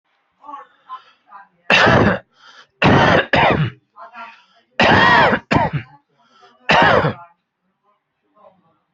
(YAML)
expert_labels:
- quality: good
  cough_type: unknown
  dyspnea: false
  wheezing: false
  stridor: false
  choking: false
  congestion: false
  nothing: true
  diagnosis: upper respiratory tract infection
  severity: unknown
age: 53
gender: male
respiratory_condition: false
fever_muscle_pain: false
status: symptomatic